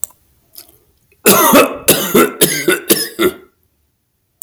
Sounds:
Cough